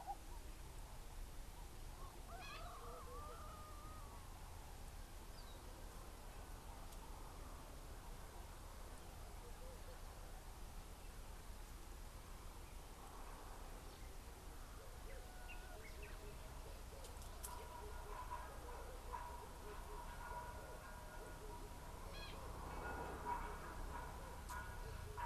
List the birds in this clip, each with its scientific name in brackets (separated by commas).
Gray-backed Camaroptera (Camaroptera brevicaudata)